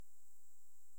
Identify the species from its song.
Pholidoptera griseoaptera